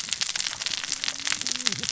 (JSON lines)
{"label": "biophony, cascading saw", "recorder": "SoundTrap 600 or HydroMoth"}